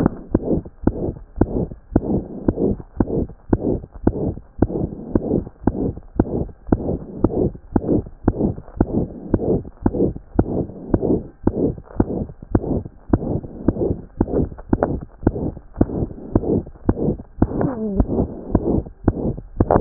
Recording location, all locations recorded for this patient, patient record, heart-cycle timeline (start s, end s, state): pulmonary valve (PV)
aortic valve (AV)+pulmonary valve (PV)+tricuspid valve (TV)+mitral valve (MV)
#Age: Child
#Sex: Female
#Height: 121.0 cm
#Weight: 28.5 kg
#Pregnancy status: False
#Murmur: Present
#Murmur locations: aortic valve (AV)+mitral valve (MV)+pulmonary valve (PV)+tricuspid valve (TV)
#Most audible location: pulmonary valve (PV)
#Systolic murmur timing: Holosystolic
#Systolic murmur shape: Plateau
#Systolic murmur grading: III/VI or higher
#Systolic murmur pitch: High
#Systolic murmur quality: Blowing
#Diastolic murmur timing: nan
#Diastolic murmur shape: nan
#Diastolic murmur grading: nan
#Diastolic murmur pitch: nan
#Diastolic murmur quality: nan
#Outcome: Abnormal
#Campaign: 2014 screening campaign
0.00	4.06	unannotated
4.06	4.13	S1
4.13	4.27	systole
4.27	4.34	S2
4.34	4.60	diastole
4.60	4.68	S1
4.68	4.84	systole
4.84	4.90	S2
4.90	5.14	diastole
5.14	5.21	S1
5.21	5.38	systole
5.38	5.44	S2
5.44	5.65	diastole
5.65	5.72	S1
5.72	5.88	systole
5.88	5.94	S2
5.94	6.19	diastole
6.19	6.26	S1
6.26	6.41	systole
6.41	6.47	S2
6.47	6.70	diastole
6.70	6.77	S1
6.77	6.93	systole
6.93	7.00	S2
7.00	7.23	diastole
7.23	7.31	S1
7.31	7.45	systole
7.45	7.52	S2
7.52	7.75	diastole
7.75	7.82	S1
7.82	7.97	systole
7.97	8.04	S2
8.04	8.27	diastole
8.27	19.81	unannotated